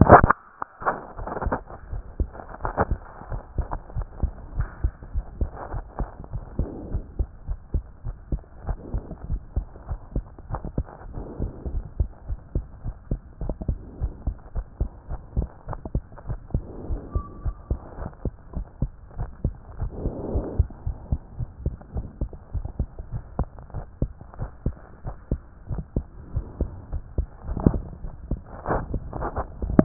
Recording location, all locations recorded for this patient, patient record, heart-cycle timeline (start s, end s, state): aortic valve (AV)
aortic valve (AV)+pulmonary valve (PV)+tricuspid valve (TV)+mitral valve (MV)
#Age: Child
#Sex: Female
#Height: 117.0 cm
#Weight: 24.0 kg
#Pregnancy status: False
#Murmur: Absent
#Murmur locations: nan
#Most audible location: nan
#Systolic murmur timing: nan
#Systolic murmur shape: nan
#Systolic murmur grading: nan
#Systolic murmur pitch: nan
#Systolic murmur quality: nan
#Diastolic murmur timing: nan
#Diastolic murmur shape: nan
#Diastolic murmur grading: nan
#Diastolic murmur pitch: nan
#Diastolic murmur quality: nan
#Outcome: Normal
#Campaign: 2014 screening campaign
0.00	3.16	unannotated
3.16	3.30	diastole
3.30	3.42	S1
3.42	3.58	systole
3.58	3.72	S2
3.72	3.94	diastole
3.94	4.08	S1
4.08	4.18	systole
4.18	4.34	S2
4.34	4.54	diastole
4.54	4.68	S1
4.68	4.80	systole
4.80	4.92	S2
4.92	5.12	diastole
5.12	5.26	S1
5.26	5.36	systole
5.36	5.52	S2
5.52	5.72	diastole
5.72	5.86	S1
5.86	6.00	systole
6.00	6.10	S2
6.10	6.32	diastole
6.32	6.44	S1
6.44	6.56	systole
6.56	6.70	S2
6.70	6.92	diastole
6.92	7.04	S1
7.04	7.16	systole
7.16	7.28	S2
7.28	7.48	diastole
7.48	7.58	S1
7.58	7.70	systole
7.70	7.84	S2
7.84	8.06	diastole
8.06	8.16	S1
8.16	8.28	systole
8.28	8.42	S2
8.42	8.66	diastole
8.66	8.78	S1
8.78	8.92	systole
8.92	9.04	S2
9.04	9.28	diastole
9.28	9.42	S1
9.42	9.52	systole
9.52	9.68	S2
9.68	9.88	diastole
9.88	10.00	S1
10.00	10.14	systole
10.14	10.26	S2
10.26	10.50	diastole
10.50	10.62	S1
10.62	10.76	systole
10.76	10.88	S2
10.88	11.10	diastole
11.10	11.22	S1
11.22	11.38	systole
11.38	11.50	S2
11.50	11.70	diastole
11.70	11.84	S1
11.84	11.96	systole
11.96	12.10	S2
12.10	12.28	diastole
12.28	12.40	S1
12.40	12.54	systole
12.54	12.66	S2
12.66	12.86	diastole
12.86	12.96	S1
12.96	13.10	systole
13.10	13.20	S2
13.20	13.42	diastole
13.42	13.56	S1
13.56	13.66	systole
13.66	13.80	S2
13.80	13.98	diastole
13.98	14.12	S1
14.12	14.24	systole
14.24	14.36	S2
14.36	14.54	diastole
14.54	14.66	S1
14.66	14.76	systole
14.76	14.90	S2
14.90	15.10	diastole
15.10	15.22	S1
15.22	15.36	systole
15.36	15.50	S2
15.50	15.70	diastole
15.70	15.80	S1
15.80	15.94	systole
15.94	16.04	S2
16.04	16.28	diastole
16.28	16.40	S1
16.40	16.52	systole
16.52	16.66	S2
16.66	16.88	diastole
16.88	17.02	S1
17.02	17.14	systole
17.14	17.24	S2
17.24	17.44	diastole
17.44	17.56	S1
17.56	17.68	systole
17.68	17.80	S2
17.80	18.00	diastole
18.00	18.10	S1
18.10	18.24	systole
18.24	18.34	S2
18.34	18.54	diastole
18.54	18.66	S1
18.66	18.78	systole
18.78	18.92	S2
18.92	19.18	diastole
19.18	19.30	S1
19.30	19.40	systole
19.40	19.56	S2
19.56	19.78	diastole
19.78	19.90	S1
19.90	20.00	systole
20.00	20.14	S2
20.14	20.34	diastole
20.34	20.46	S1
20.46	20.58	systole
20.58	20.68	S2
20.68	20.86	diastole
20.86	20.98	S1
20.98	21.10	systole
21.10	21.20	S2
21.20	21.38	diastole
21.38	21.50	S1
21.50	21.62	systole
21.62	21.76	S2
21.76	21.94	diastole
21.94	22.06	S1
22.06	22.20	systole
22.20	22.30	S2
22.30	22.54	diastole
22.54	22.66	S1
22.66	22.78	systole
22.78	22.90	S2
22.90	23.12	diastole
23.12	23.24	S1
23.24	23.36	systole
23.36	23.50	S2
23.50	23.76	diastole
23.76	23.86	S1
23.86	23.98	systole
23.98	24.12	S2
24.12	24.40	diastole
24.40	24.50	S1
24.50	24.62	systole
24.62	24.76	S2
24.76	25.04	diastole
25.04	25.16	S1
25.16	25.28	systole
25.28	25.42	S2
25.42	25.68	diastole
25.68	25.84	S1
25.84	25.96	systole
25.96	26.06	S2
26.06	26.32	diastole
26.32	26.46	S1
26.46	26.58	systole
26.58	26.70	S2
26.70	26.90	diastole
26.90	27.02	S1
27.02	27.14	systole
27.14	27.28	S2
27.28	27.48	diastole
27.48	27.50	S1
27.50	29.84	unannotated